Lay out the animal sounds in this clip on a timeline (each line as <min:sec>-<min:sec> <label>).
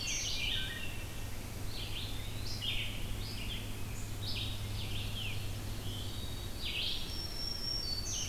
0:00.0-0:08.3 Red-eyed Vireo (Vireo olivaceus)
0:00.4-0:01.1 Wood Thrush (Hylocichla mustelina)
0:01.6-0:02.6 Eastern Wood-Pewee (Contopus virens)
0:04.2-0:06.2 Ovenbird (Seiurus aurocapilla)
0:06.8-0:08.3 Black-throated Green Warbler (Setophaga virens)